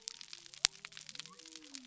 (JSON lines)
{"label": "biophony", "recorder": "SoundTrap 300"}